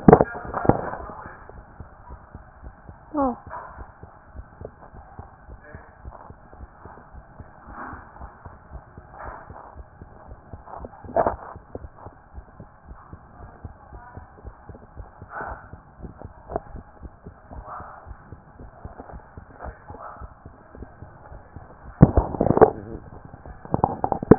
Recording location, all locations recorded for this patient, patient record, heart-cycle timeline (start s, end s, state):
tricuspid valve (TV)
aortic valve (AV)+pulmonary valve (PV)+tricuspid valve (TV)
#Age: Child
#Sex: Female
#Height: 128.0 cm
#Weight: 35.2 kg
#Pregnancy status: False
#Murmur: Absent
#Murmur locations: nan
#Most audible location: nan
#Systolic murmur timing: nan
#Systolic murmur shape: nan
#Systolic murmur grading: nan
#Systolic murmur pitch: nan
#Systolic murmur quality: nan
#Diastolic murmur timing: nan
#Diastolic murmur shape: nan
#Diastolic murmur grading: nan
#Diastolic murmur pitch: nan
#Diastolic murmur quality: nan
#Outcome: Normal
#Campaign: 2014 screening campaign
0.00	11.68	unannotated
11.68	11.75	diastole
11.75	11.83	S1
11.83	11.98	systole
11.98	12.14	S2
12.14	12.34	diastole
12.34	12.46	S1
12.46	12.60	systole
12.60	12.68	S2
12.68	12.88	diastole
12.88	12.98	S1
12.98	13.12	systole
13.12	13.20	S2
13.20	13.40	diastole
13.40	13.50	S1
13.50	13.64	systole
13.64	13.74	S2
13.74	13.92	diastole
13.92	14.02	S1
14.02	14.16	systole
14.16	14.26	S2
14.26	14.44	diastole
14.44	14.56	S1
14.56	14.70	systole
14.70	14.78	S2
14.78	14.96	diastole
14.96	15.08	S1
15.08	15.20	systole
15.20	15.30	S2
15.30	24.38	unannotated